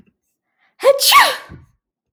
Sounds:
Sneeze